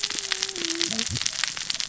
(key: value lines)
label: biophony, cascading saw
recorder: SoundTrap 600 or HydroMoth